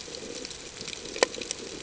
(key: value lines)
label: ambient
recorder: HydroMoth